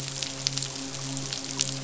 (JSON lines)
{"label": "biophony, midshipman", "recorder": "SoundTrap 500"}